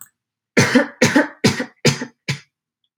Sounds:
Cough